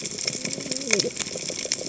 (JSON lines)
{"label": "biophony, cascading saw", "recorder": "HydroMoth"}